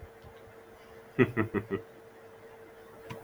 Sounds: Laughter